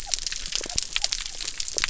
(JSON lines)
{"label": "biophony", "recorder": "SoundTrap 300"}